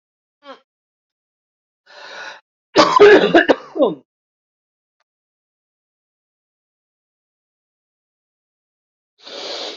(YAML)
expert_labels:
- quality: good
  cough_type: dry
  dyspnea: false
  wheezing: false
  stridor: false
  choking: false
  congestion: true
  nothing: false
  diagnosis: upper respiratory tract infection
  severity: mild
age: 27
gender: male
respiratory_condition: false
fever_muscle_pain: false
status: healthy